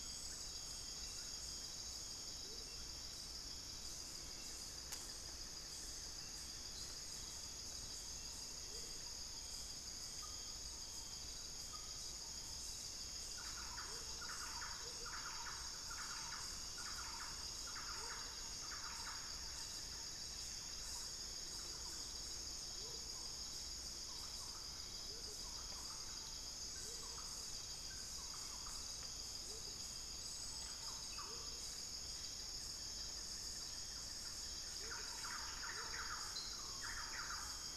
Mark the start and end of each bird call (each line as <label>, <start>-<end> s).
unidentified bird, 0.0-2.0 s
Hauxwell's Thrush (Turdus hauxwelli), 0.0-2.2 s
Amazonian Motmot (Momotus momota), 2.3-2.8 s
unidentified bird, 4.2-7.1 s
Amazonian Motmot (Momotus momota), 8.6-9.0 s
Thrush-like Wren (Campylorhynchus turdinus), 10.1-37.8 s
Amazonian Motmot (Momotus momota), 13.8-37.8 s